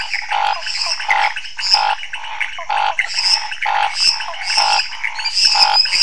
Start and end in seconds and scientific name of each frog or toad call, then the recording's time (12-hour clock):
0.0	6.0	Dendropsophus minutus
0.0	6.0	Leptodactylus podicipinus
0.0	6.0	Pithecopus azureus
0.0	6.0	Scinax fuscovarius
0.5	1.0	Physalaemus nattereri
2.5	2.7	Physalaemus nattereri
4.2	4.4	Physalaemus nattereri
10:00pm